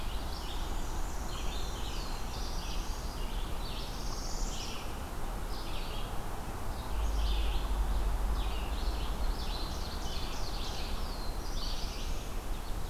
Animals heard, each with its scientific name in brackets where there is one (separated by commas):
Black-throated Blue Warbler (Setophaga caerulescens), Red-eyed Vireo (Vireo olivaceus), Northern Parula (Setophaga americana), Black-and-white Warbler (Mniotilta varia), Ovenbird (Seiurus aurocapilla)